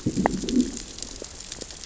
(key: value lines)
label: biophony, growl
recorder: SoundTrap 600 or HydroMoth